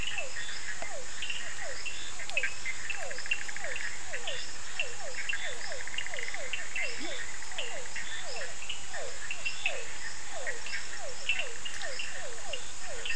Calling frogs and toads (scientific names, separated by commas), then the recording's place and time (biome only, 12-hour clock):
Physalaemus cuvieri, Sphaenorhynchus surdus, Boana bischoffi, Leptodactylus latrans
Atlantic Forest, 10:30pm